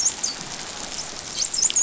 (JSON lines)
{"label": "biophony, dolphin", "recorder": "SoundTrap 500"}